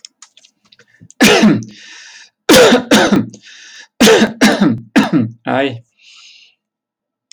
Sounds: Cough